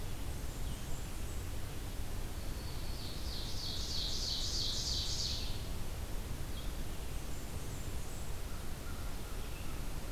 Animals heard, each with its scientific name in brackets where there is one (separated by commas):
American Crow (Corvus brachyrhynchos), Blackburnian Warbler (Setophaga fusca), Ovenbird (Seiurus aurocapilla)